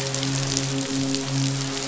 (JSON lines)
{"label": "biophony, midshipman", "recorder": "SoundTrap 500"}